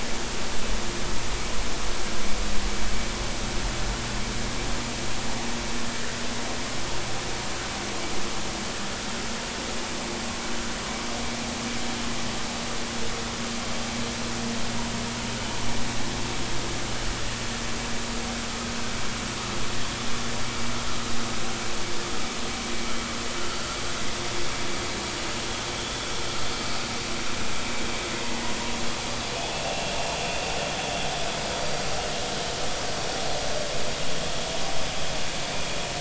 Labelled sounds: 29.5	29.9	vessel noise, 2.6 to 2.8 kHz

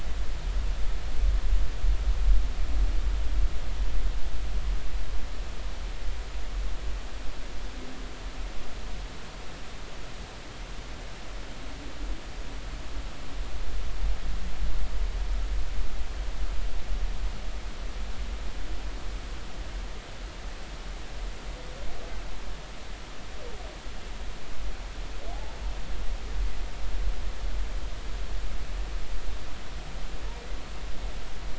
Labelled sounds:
25.3	25.6	humpback whale, 0.80 to 0.96 kHz

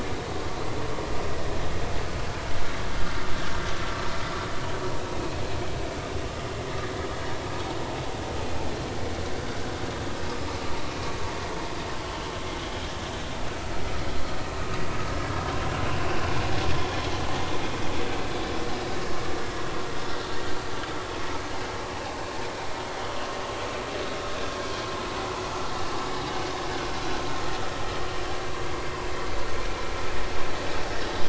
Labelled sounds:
5.1	5.4	vessel noise, 2.5 to 2.6 kHz
15.1	15.4	vessel noise, 1.6 to 1.7 kHz
16.7	17.0	vessel noise, 3.2 to 3.4 kHz
26.4	26.7	vessel noise, 4.8 to 5.0 kHz

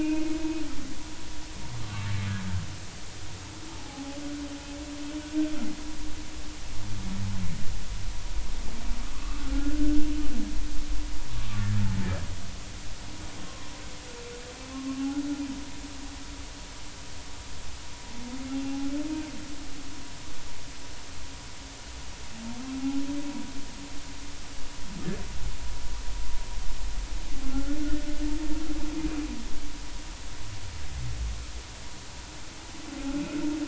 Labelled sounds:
1.8	2.1	humpback whale, 1.1 to 1.2 kHz
3.7	4.1	humpback whale, 0.80 to 0.96 kHz
9.4	10.1	humpback whale, 1.2 to 1.6 kHz
13.4	13.7	humpback whale, 0.96 to 1.1 kHz
14.7	15.1	humpback whale, 1.0 to 1.1 kHz
18.5	18.9	humpback whale, 0.80 to 2.8 kHz
27.5	27.8	humpback whale, 1.3 to 1.5 kHz

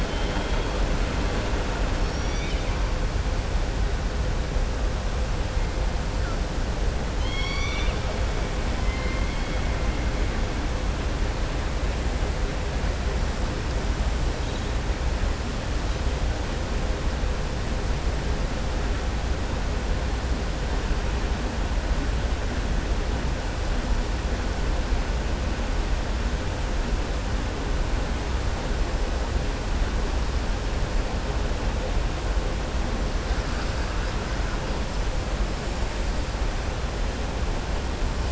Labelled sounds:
0.0	0.6	killer whale, southern resident, 2.1 to 3.8 kHz
7.1	8.0	killer whale, southern resident, 1.2 to 6.5 kHz
8.8	9.6	killer whale, southern resident, 1.1 to 3.2 kHz

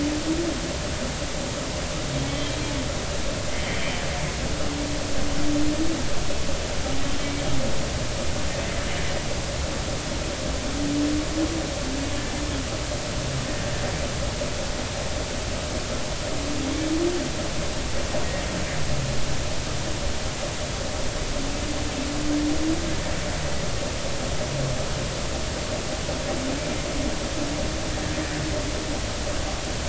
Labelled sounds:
2.3	2.6	humpback whale, 3.0 to 3.3 kHz
3.6	4.0	humpback whale, 1.8 to 3.2 kHz

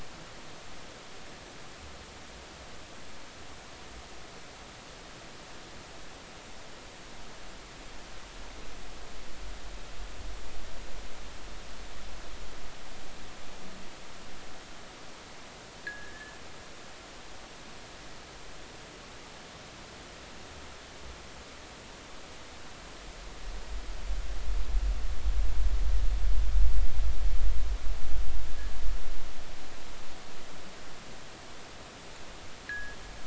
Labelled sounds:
15.8	16.3	fishing gear, 1.6 to 2.0 kHz
32.7	33.0	fishing gear, 1.5 to 2.0 kHz

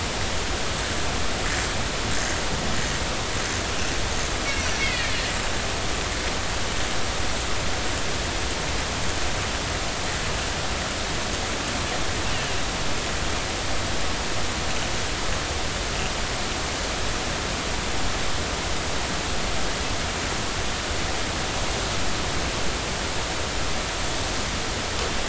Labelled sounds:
4.8	5.1	Risso's dolphin, 1.7 to 2.8 kHz

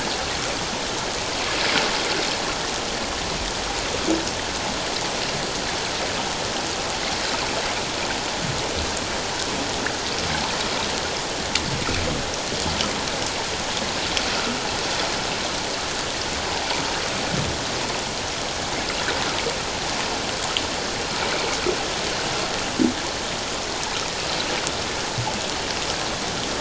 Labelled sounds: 14.3	14.6	water noise, 1.2 to 1.5 kHz

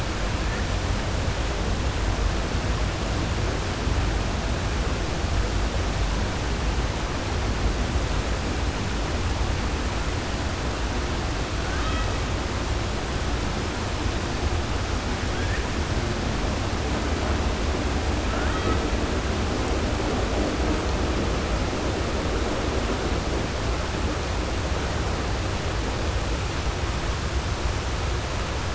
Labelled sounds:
11.6	12.1	killer whale, 1.2 to 3.9 kHz

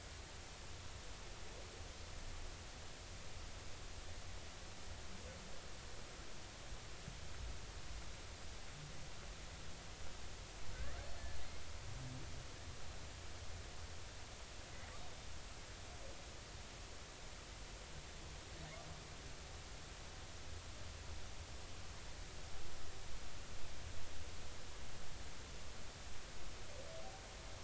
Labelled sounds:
10.7	11.0	humpback whale, 1.4 to 2.0 kHz

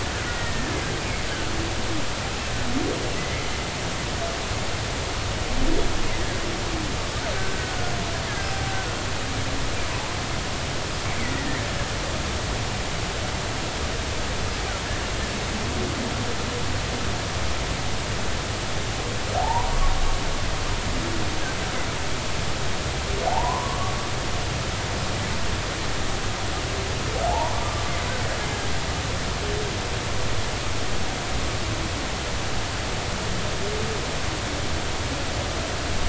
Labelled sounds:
0.4	0.7	killer whale, Bigg's (transient), 1.7 to 1.9 kHz
3.2	3.4	killer whale, Bigg's (transient), 1.9 to 2.1 kHz
7.4	7.8	killer whale, Bigg's (transient), 1.4 to 1.6 kHz
8.4	8.6	killer whale, Bigg's (transient), 5.0 to 5.2 kHz
11.2	11.6	killer whale, Bigg's (transient), 1.7 to 2.3 kHz
19.4	19.8	humpback whale, 0.80 to 1.0 kHz
23.3	23.9	humpback whale, 0.80 to 1.2 kHz
27.3	27.9	humpback whale, 0.80 to 1.2 kHz

